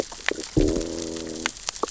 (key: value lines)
label: biophony, growl
recorder: SoundTrap 600 or HydroMoth